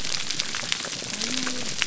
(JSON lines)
{"label": "biophony", "recorder": "SoundTrap 300"}